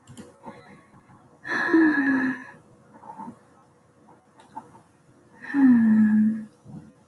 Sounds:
Sigh